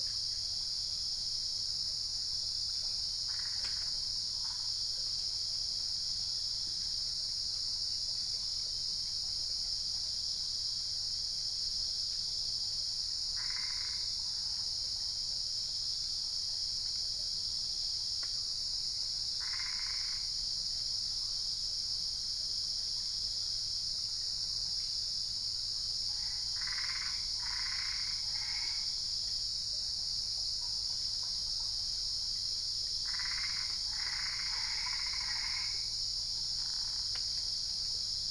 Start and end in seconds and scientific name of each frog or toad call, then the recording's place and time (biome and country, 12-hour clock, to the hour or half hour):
3.1	4.4	Boana albopunctata
13.1	14.6	Boana albopunctata
19.1	20.4	Boana albopunctata
26.2	29.0	Boana albopunctata
32.9	36.0	Boana albopunctata
Cerrado, Brazil, 5am